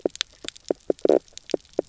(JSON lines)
{"label": "biophony, knock croak", "recorder": "SoundTrap 300"}